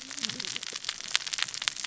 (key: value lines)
label: biophony, cascading saw
recorder: SoundTrap 600 or HydroMoth